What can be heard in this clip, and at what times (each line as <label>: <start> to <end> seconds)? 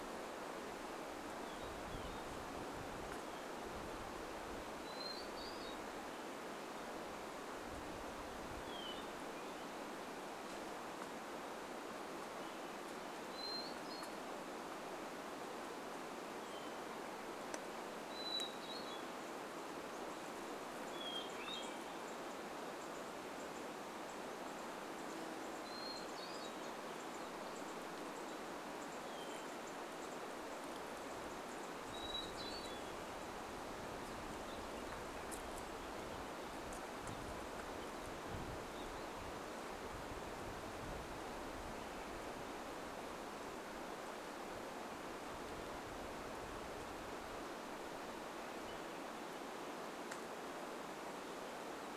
unidentified sound: 0 to 4 seconds
Hermit Thrush song: 4 to 6 seconds
Hermit Thrush song: 8 to 10 seconds
Hermit Thrush song: 12 to 14 seconds
Hermit Thrush song: 16 to 22 seconds
unidentified bird chip note: 20 to 34 seconds
Hermit Thrush song: 24 to 30 seconds
Hermit Thrush song: 32 to 34 seconds
unidentified sound: 34 to 40 seconds
unidentified sound: 48 to 50 seconds